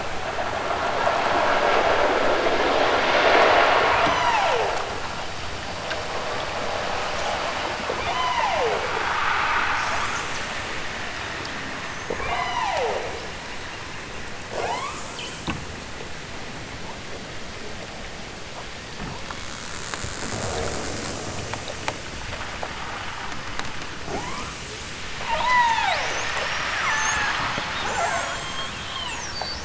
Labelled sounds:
4.0	4.7	killer whale, southern Alaska resident, 1.2 to 8.0 kHz
7.9	8.9	killer whale, southern Alaska resident, 0.18 to 6.5 kHz
11.8	13.3	killer whale, southern Alaska resident, 0 to 7.0 kHz
14.5	15.4	killer whale, southern Alaska resident, 0.23 to 8.0 kHz
24.0	24.6	killer whale, southern Alaska resident, 0.28 to 3.4 kHz
25.3	26.3	killer whale, southern Alaska resident, 0.23 to 8.0 kHz
26.8	27.5	killer whale, southern Alaska resident, 0.74 to 7.3 kHz
27.8	29.3	killer whale, southern Alaska resident, 0.32 to 8.0 kHz

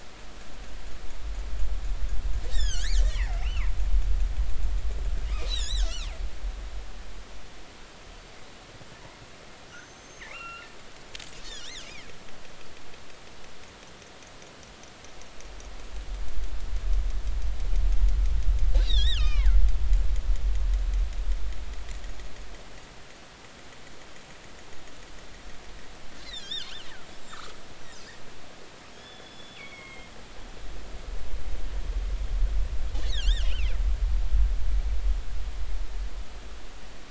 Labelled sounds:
2.5	3.7	killer whale, northern resident, G clan, 1.4 to 7.6 kHz
5.5	6.1	killer whale, northern resident, G clan, 1.3 to 6.7 kHz
9.7	10.7	killer whale, northern resident, G clan, GI subclan, call N23i, 0.99 to 6.4 kHz
11.5	12.1	killer whale, northern resident, G clan, 1.6 to 6.5 kHz
18.7	19.6	killer whale, northern resident, G clan, 0.83 to 6.8 kHz
26.2	26.7	killer whale, northern resident, G clan, 1.3 to 7.5 kHz
28.9	30.1	killer whale, northern resident, G clan, GG subclan, call N23ii, 2.1 to 5.5 kHz
33.0	33.7	killer whale, northern resident, G clan, 1.3 to 4.5 kHz

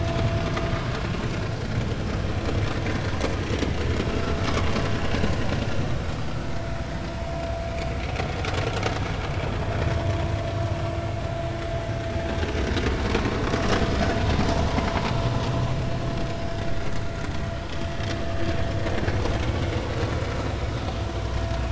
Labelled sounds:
0.8	1.0	vessel noise, 6.8 to 7.0 kHz
4.1	4.3	vessel noise, 1.3 to 1.4 kHz

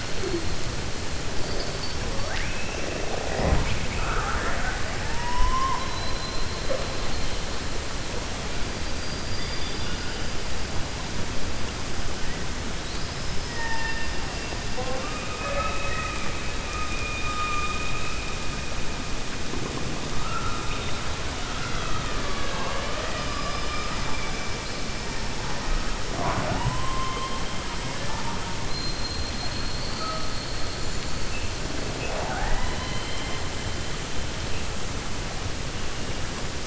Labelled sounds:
13.4	14.1	killer whale, 0.89 to 3.6 kHz

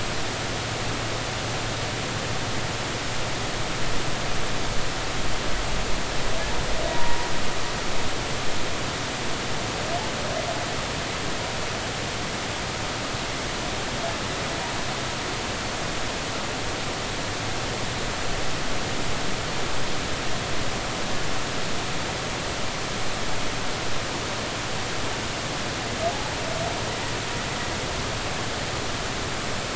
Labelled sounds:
6.9	7.3	humpback whale, 0.90 to 1.0 kHz

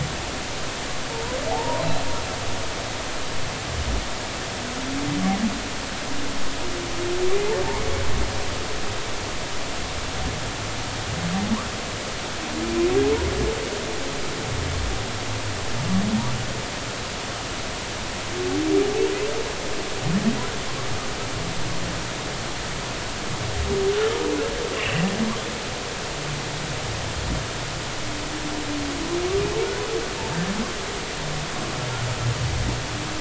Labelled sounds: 1.1	2.1	humpback whale, 0.80 to 4.2 kHz
7.3	7.5	humpback whale, 2.2 to 2.5 kHz
24.7	25.1	humpback whale, 2.5 to 3.0 kHz

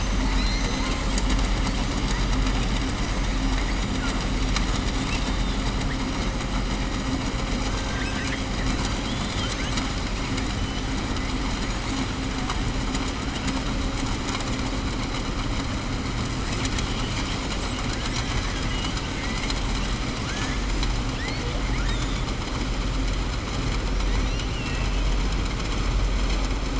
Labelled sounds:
7.8	8.4	killer whale, southern resident, 1.5 to 3.6 kHz
24.2	25.0	killer whale, southern resident, 1.9 to 6.3 kHz

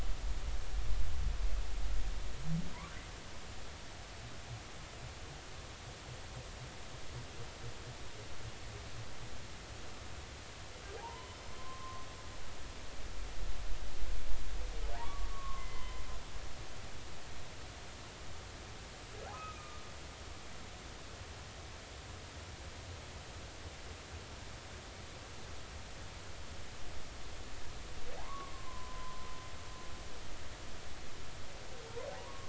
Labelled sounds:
11.0	11.3	humpback whale, 0.80 to 1.1 kHz
12.5	13.0	humpback whale, 0.99 to 1.1 kHz
14.9	16.0	humpback whale, 0.80 to 3.1 kHz
19.3	19.6	humpback whale, 1.2 to 1.3 kHz
28.2	29.3	humpback whale, 0.80 to 1.2 kHz
32.1	32.4	humpback whale, 0.80 to 1.2 kHz

